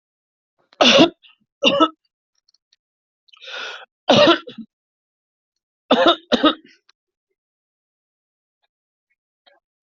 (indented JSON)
{
  "expert_labels": [
    {
      "quality": "good",
      "cough_type": "dry",
      "dyspnea": false,
      "wheezing": false,
      "stridor": false,
      "choking": false,
      "congestion": true,
      "nothing": false,
      "diagnosis": "upper respiratory tract infection",
      "severity": "mild"
    }
  ],
  "age": 41,
  "gender": "female",
  "respiratory_condition": true,
  "fever_muscle_pain": false,
  "status": "healthy"
}